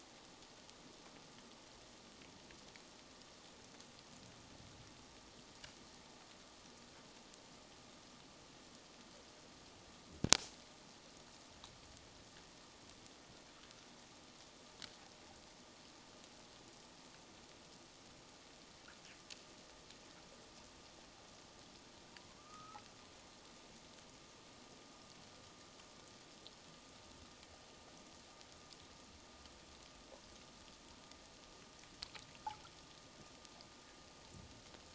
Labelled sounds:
22.3	22.8	humpback whale, 1.0 to 1.4 kHz

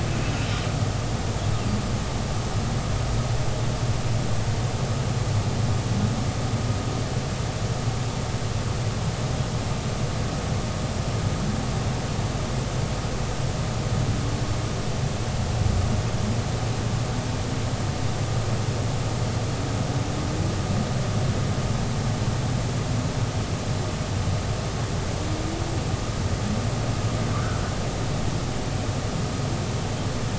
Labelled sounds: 27.3	27.6	humpback whale, 1.1 to 1.6 kHz

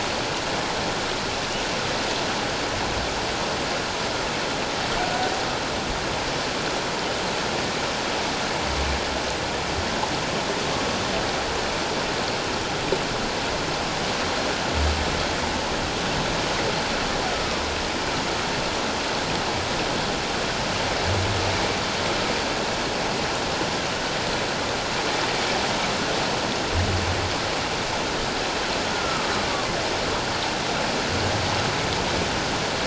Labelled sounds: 17.3	17.6	humpback whale, 1.1 to 1.3 kHz
28.9	29.3	humpback whale, 1.1 to 1.5 kHz

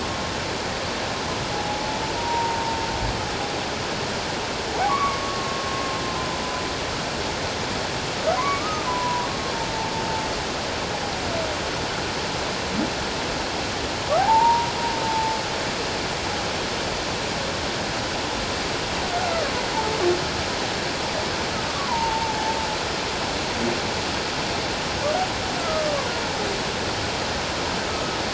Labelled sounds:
1.5	2.6	humpback whale, 0.78 to 1.0 kHz
4.8	6.4	humpback whale, 0.78 to 2.3 kHz
8.4	9.3	humpback whale, 0.91 to 1.3 kHz
14.2	14.7	humpback whale, 0.78 to 1.0 kHz
15.1	15.4	humpback whale, 0.84 to 0.91 kHz
21.7	22.6	humpback whale, 0.78 to 1.2 kHz

